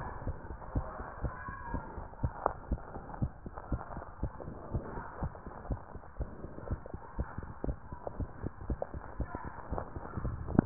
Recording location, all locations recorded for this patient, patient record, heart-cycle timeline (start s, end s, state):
tricuspid valve (TV)
aortic valve (AV)+pulmonary valve (PV)+tricuspid valve (TV)+mitral valve (MV)
#Age: Child
#Sex: Male
#Height: 128.0 cm
#Weight: 37.1 kg
#Pregnancy status: False
#Murmur: Absent
#Murmur locations: nan
#Most audible location: nan
#Systolic murmur timing: nan
#Systolic murmur shape: nan
#Systolic murmur grading: nan
#Systolic murmur pitch: nan
#Systolic murmur quality: nan
#Diastolic murmur timing: nan
#Diastolic murmur shape: nan
#Diastolic murmur grading: nan
#Diastolic murmur pitch: nan
#Diastolic murmur quality: nan
#Outcome: Abnormal
#Campaign: 2015 screening campaign
0.00	0.25	unannotated
0.25	0.38	S1
0.38	0.48	systole
0.48	0.58	S2
0.58	0.72	diastole
0.72	0.86	S1
0.86	0.96	systole
0.96	1.06	S2
1.06	1.22	diastole
1.22	1.34	S1
1.34	1.44	systole
1.44	1.54	S2
1.54	1.70	diastole
1.70	1.84	S1
1.84	1.96	systole
1.96	2.06	S2
2.06	2.20	diastole
2.20	2.32	S1
2.32	2.46	systole
2.46	2.54	S2
2.54	2.68	diastole
2.68	2.80	S1
2.80	2.94	systole
2.94	3.06	S2
3.06	3.20	diastole
3.20	3.32	S1
3.32	3.44	systole
3.44	3.54	S2
3.54	3.70	diastole
3.70	3.82	S1
3.82	3.96	systole
3.96	4.04	S2
4.04	4.20	diastole
4.20	4.32	S1
4.32	4.46	systole
4.46	4.56	S2
4.56	4.70	diastole
4.70	4.84	S1
4.84	4.94	systole
4.94	5.06	S2
5.06	5.20	diastole
5.20	5.34	S1
5.34	5.46	systole
5.46	5.52	S2
5.52	5.68	diastole
5.68	5.80	S1
5.80	5.94	systole
5.94	6.00	S2
6.00	6.18	diastole
6.18	6.32	S1
6.32	6.40	systole
6.40	6.50	S2
6.50	6.66	diastole
6.66	6.80	S1
6.80	6.90	systole
6.90	7.00	S2
7.00	7.18	diastole
7.18	7.28	S1
7.28	7.38	systole
7.38	7.50	S2
7.50	7.64	diastole
7.64	7.78	S1
7.78	7.90	systole
7.90	7.98	S2
7.98	8.16	diastole
8.16	8.30	S1
8.30	8.42	systole
8.42	8.52	S2
8.52	8.66	diastole
8.66	8.80	S1
8.80	8.94	systole
8.94	9.04	S2
9.04	9.18	diastole
9.18	9.30	S1
9.30	9.44	systole
9.44	9.52	S2
9.52	9.70	diastole
9.70	10.66	unannotated